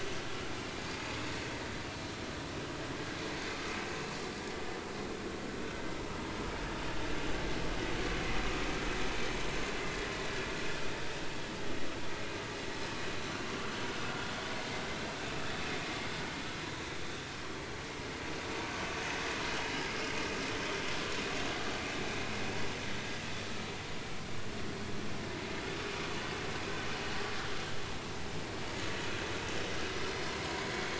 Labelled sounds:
20.5	20.8	vessel noise, 3.0 to 3.2 kHz

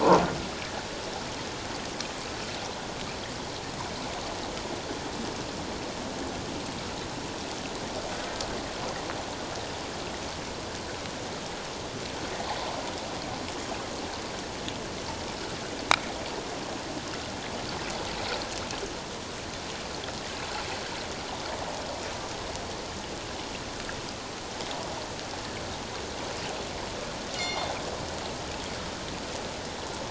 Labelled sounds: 27.3	27.7	killer whale, northern resident, G clan, call N24ii, 2.1 to 5.8 kHz

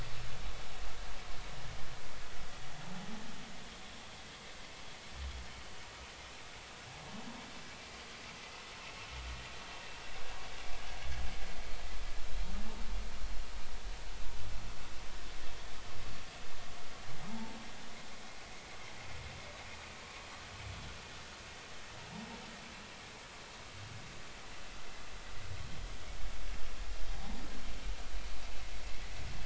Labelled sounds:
5.5	5.7	vessel noise, 3.0 to 3.2 kHz
17.3	17.5	humpback whale, 0.83 to 0.96 kHz
27.1	27.4	humpback whale, 0.80 to 0.96 kHz

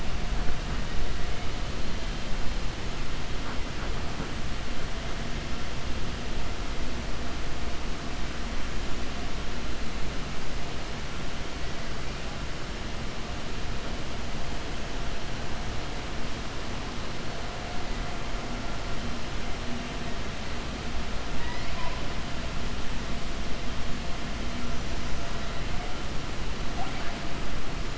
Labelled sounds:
21.3	22.0	killer whale, 0.67 to 5.1 kHz

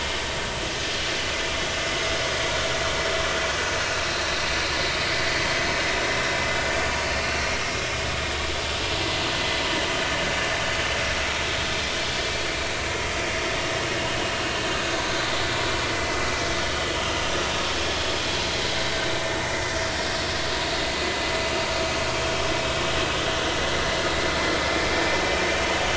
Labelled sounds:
6.4	6.7	vessel noise, 2.9 to 3.0 kHz
22.1	22.3	vessel noise, 3.1 to 3.3 kHz
24.7	25.0	vessel noise, 2.1 to 2.5 kHz

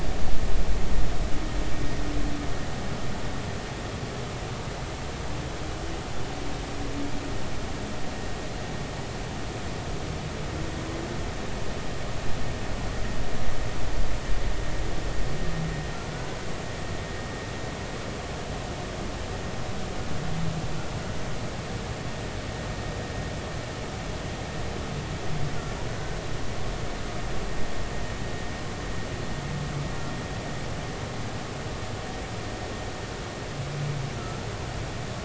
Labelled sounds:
34.1	34.5	humpback whale, 1.2 to 1.4 kHz

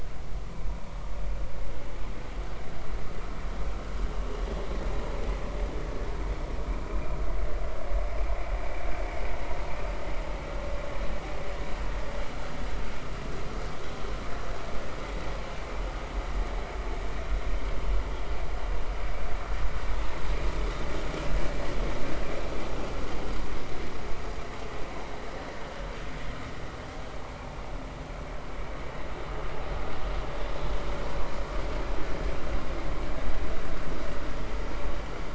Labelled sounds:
6.9	7.2	vessel noise, 2.3 to 2.5 kHz

